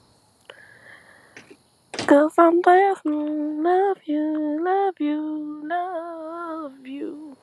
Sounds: Sigh